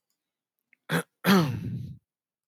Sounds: Throat clearing